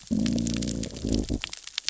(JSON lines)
{"label": "biophony, growl", "recorder": "SoundTrap 600 or HydroMoth"}